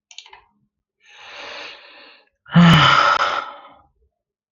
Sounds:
Sigh